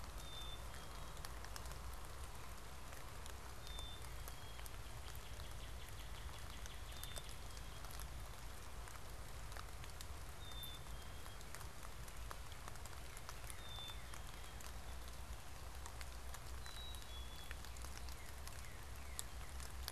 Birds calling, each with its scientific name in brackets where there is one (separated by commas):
Black-capped Chickadee (Poecile atricapillus), Northern Cardinal (Cardinalis cardinalis)